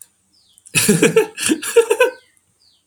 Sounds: Laughter